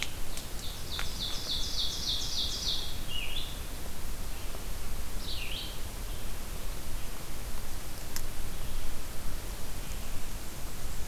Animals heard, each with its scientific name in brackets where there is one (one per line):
Red-eyed Vireo (Vireo olivaceus)
Ovenbird (Seiurus aurocapilla)